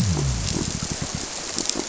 {"label": "biophony", "recorder": "SoundTrap 300"}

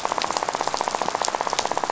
{"label": "biophony, rattle", "recorder": "SoundTrap 500"}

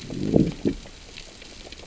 {"label": "biophony, growl", "recorder": "SoundTrap 600 or HydroMoth"}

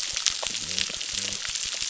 {"label": "biophony", "recorder": "SoundTrap 600"}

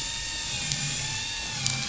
{"label": "anthrophony, boat engine", "recorder": "SoundTrap 500"}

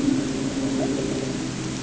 {"label": "anthrophony, boat engine", "recorder": "HydroMoth"}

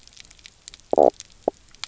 {"label": "biophony, knock croak", "recorder": "SoundTrap 300"}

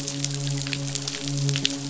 {"label": "biophony, midshipman", "recorder": "SoundTrap 500"}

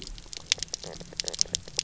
{"label": "biophony, knock croak", "recorder": "SoundTrap 300"}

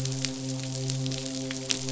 {"label": "biophony, midshipman", "recorder": "SoundTrap 500"}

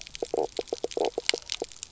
{"label": "biophony, knock croak", "recorder": "SoundTrap 300"}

